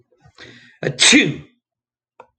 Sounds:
Sneeze